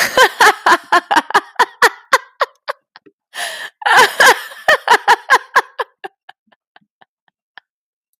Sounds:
Laughter